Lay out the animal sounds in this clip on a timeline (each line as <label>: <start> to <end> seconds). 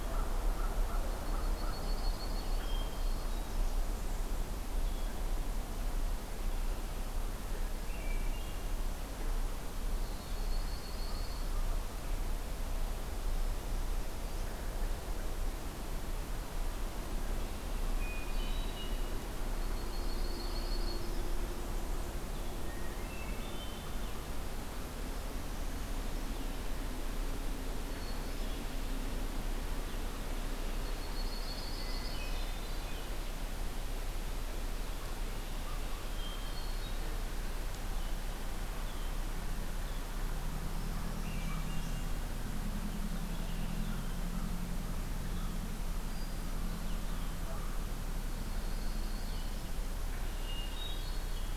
American Crow (Corvus brachyrhynchos): 0.0 to 1.9 seconds
Yellow-rumped Warbler (Setophaga coronata): 1.0 to 2.7 seconds
Hermit Thrush (Catharus guttatus): 2.5 to 3.5 seconds
Hermit Thrush (Catharus guttatus): 7.7 to 8.8 seconds
Yellow-rumped Warbler (Setophaga coronata): 10.0 to 11.5 seconds
Hermit Thrush (Catharus guttatus): 17.9 to 19.1 seconds
Yellow-rumped Warbler (Setophaga coronata): 19.6 to 21.3 seconds
Hermit Thrush (Catharus guttatus): 22.7 to 24.0 seconds
Hermit Thrush (Catharus guttatus): 27.8 to 28.6 seconds
Yellow-rumped Warbler (Setophaga coronata): 30.8 to 32.4 seconds
Hermit Thrush (Catharus guttatus): 31.8 to 33.1 seconds
Hermit Thrush (Catharus guttatus): 36.0 to 37.0 seconds
Hermit Thrush (Catharus guttatus): 41.1 to 42.2 seconds
Blue-headed Vireo (Vireo solitarius): 45.1 to 49.7 seconds
Hermit Thrush (Catharus guttatus): 46.0 to 46.7 seconds
Yellow-rumped Warbler (Setophaga coronata): 48.2 to 49.6 seconds
Hermit Thrush (Catharus guttatus): 50.3 to 51.6 seconds